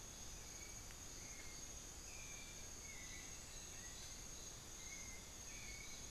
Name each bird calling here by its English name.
White-necked Thrush